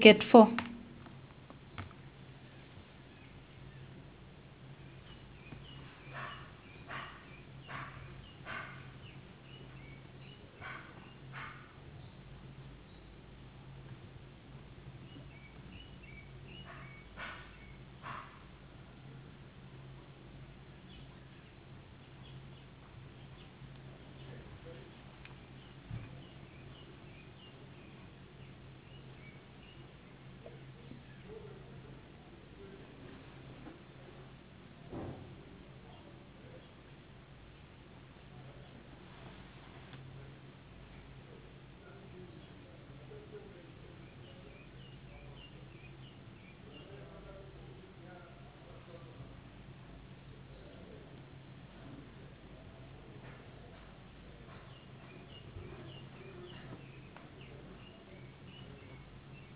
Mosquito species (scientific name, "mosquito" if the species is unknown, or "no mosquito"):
no mosquito